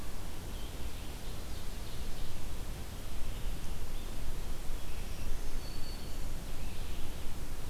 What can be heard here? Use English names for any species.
Ovenbird, Black-throated Green Warbler